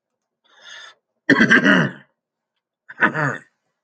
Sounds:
Throat clearing